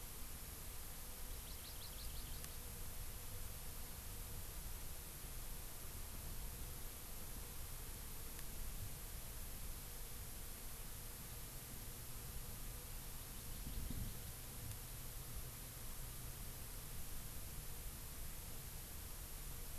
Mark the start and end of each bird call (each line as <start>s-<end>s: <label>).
1.2s-2.7s: Hawaii Amakihi (Chlorodrepanis virens)
13.1s-14.4s: Hawaii Amakihi (Chlorodrepanis virens)